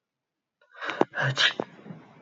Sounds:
Sneeze